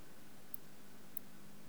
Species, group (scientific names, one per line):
Tylopsis lilifolia
Orthoptera